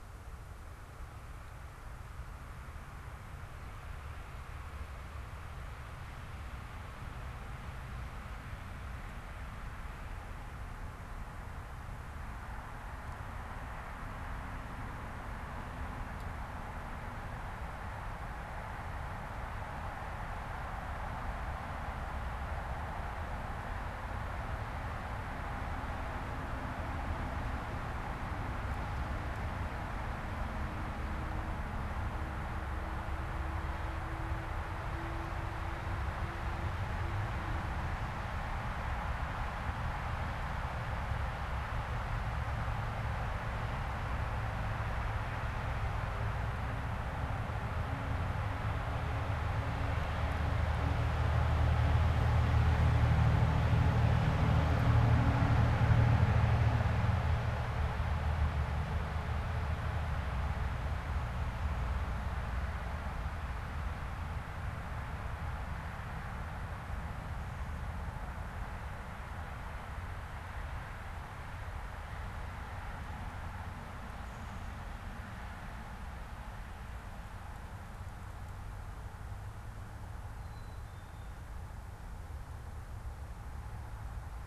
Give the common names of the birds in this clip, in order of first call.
Black-capped Chickadee